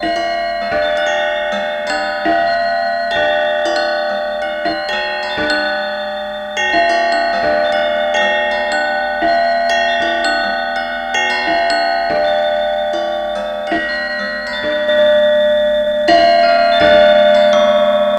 Does this sound come from an animal?
no